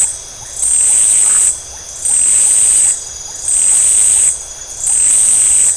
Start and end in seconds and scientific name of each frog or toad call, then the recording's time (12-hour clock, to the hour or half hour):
0.0	5.7	Leptodactylus notoaktites
1.2	1.5	Phyllomedusa distincta
10:30pm